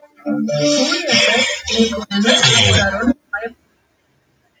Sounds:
Sniff